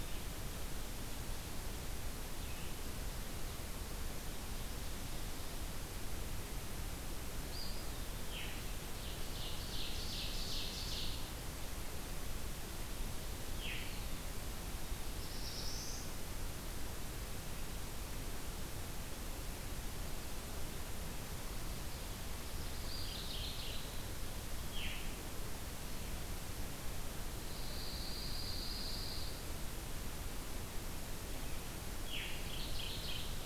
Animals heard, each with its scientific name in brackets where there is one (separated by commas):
Pine Warbler (Setophaga pinus), Eastern Wood-Pewee (Contopus virens), Veery (Catharus fuscescens), Ovenbird (Seiurus aurocapilla), Black-throated Blue Warbler (Setophaga caerulescens), Mourning Warbler (Geothlypis philadelphia)